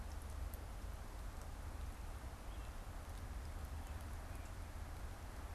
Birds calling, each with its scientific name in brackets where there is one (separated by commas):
American Robin (Turdus migratorius)